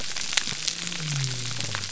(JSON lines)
{"label": "biophony", "recorder": "SoundTrap 300"}